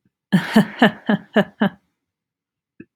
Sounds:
Laughter